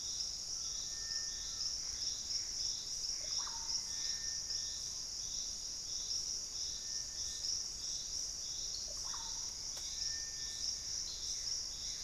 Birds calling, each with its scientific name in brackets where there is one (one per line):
White-throated Woodpecker (Piculus leucolaemus)
Hauxwell's Thrush (Turdus hauxwelli)
Russet-backed Oropendola (Psarocolius angustifrons)
Collared Trogon (Trogon collaris)
Gray Antbird (Cercomacra cinerascens)
Purple-throated Fruitcrow (Querula purpurata)